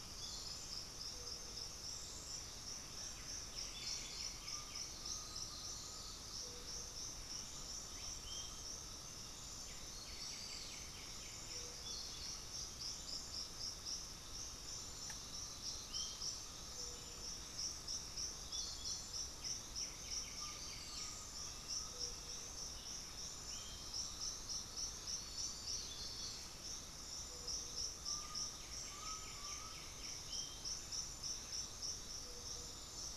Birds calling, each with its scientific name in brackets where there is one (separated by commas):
Bluish-fronted Jacamar (Galbula cyanescens), Undulated Tinamou (Crypturellus undulatus), White-winged Becard (Pachyramphus polychopterus), Black-throated Antbird (Myrmophylax atrothorax)